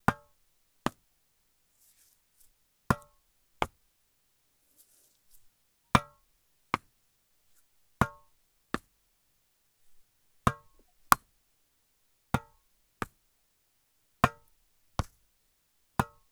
does a person make a noise?
yes